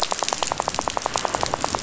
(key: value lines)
label: biophony, rattle
recorder: SoundTrap 500